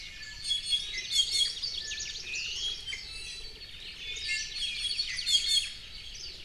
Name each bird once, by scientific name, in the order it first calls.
Drepanis coccinea, Chlorodrepanis virens, Zosterops japonicus